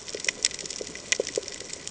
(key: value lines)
label: ambient
recorder: HydroMoth